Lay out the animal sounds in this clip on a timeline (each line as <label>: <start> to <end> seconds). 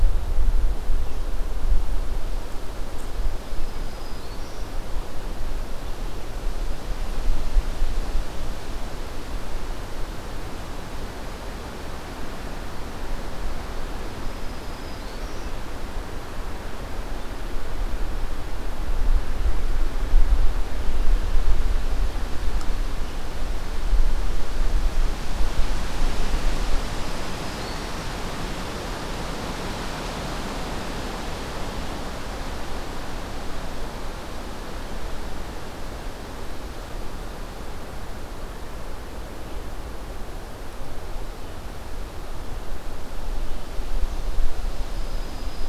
Black-throated Green Warbler (Setophaga virens): 3.2 to 4.7 seconds
Black-throated Green Warbler (Setophaga virens): 14.1 to 15.5 seconds
Black-throated Green Warbler (Setophaga virens): 26.7 to 28.2 seconds
Black-throated Green Warbler (Setophaga virens): 44.7 to 45.7 seconds